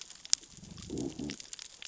{"label": "biophony, growl", "recorder": "SoundTrap 600 or HydroMoth"}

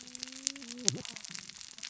{"label": "biophony, cascading saw", "recorder": "SoundTrap 600 or HydroMoth"}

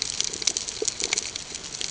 {"label": "ambient", "recorder": "HydroMoth"}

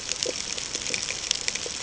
{"label": "ambient", "recorder": "HydroMoth"}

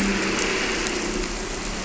{"label": "anthrophony, boat engine", "recorder": "SoundTrap 300"}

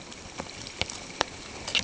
{"label": "ambient", "recorder": "HydroMoth"}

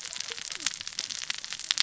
{"label": "biophony, cascading saw", "recorder": "SoundTrap 600 or HydroMoth"}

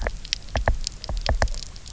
{"label": "biophony, knock", "recorder": "SoundTrap 300"}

